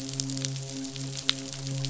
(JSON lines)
{"label": "biophony, midshipman", "recorder": "SoundTrap 500"}